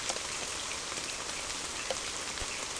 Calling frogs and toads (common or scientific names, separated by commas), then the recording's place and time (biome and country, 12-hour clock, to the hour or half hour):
none
Atlantic Forest, Brazil, ~8pm